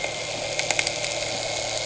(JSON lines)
{"label": "anthrophony, boat engine", "recorder": "HydroMoth"}